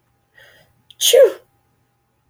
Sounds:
Sneeze